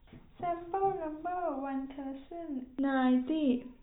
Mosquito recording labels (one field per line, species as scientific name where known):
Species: no mosquito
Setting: cup